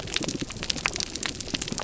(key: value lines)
label: biophony
recorder: SoundTrap 300